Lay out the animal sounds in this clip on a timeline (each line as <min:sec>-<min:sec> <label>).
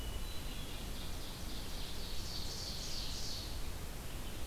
0:00.0-0:00.8 Hermit Thrush (Catharus guttatus)
0:00.0-0:04.5 Red-eyed Vireo (Vireo olivaceus)
0:00.5-0:03.5 Ovenbird (Seiurus aurocapilla)